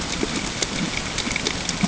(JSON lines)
{"label": "ambient", "recorder": "HydroMoth"}